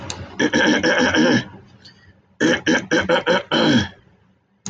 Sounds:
Throat clearing